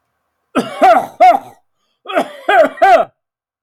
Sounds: Throat clearing